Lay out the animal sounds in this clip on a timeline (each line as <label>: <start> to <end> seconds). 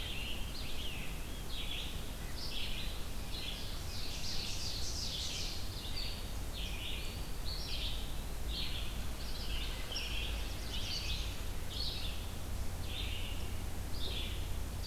Rose-breasted Grosbeak (Pheucticus ludovicianus): 0.0 to 1.4 seconds
Red-breasted Nuthatch (Sitta canadensis): 0.0 to 3.5 seconds
Red-eyed Vireo (Vireo olivaceus): 0.0 to 14.4 seconds
Ovenbird (Seiurus aurocapilla): 3.6 to 5.7 seconds
Black-throated Blue Warbler (Setophaga caerulescens): 10.2 to 11.4 seconds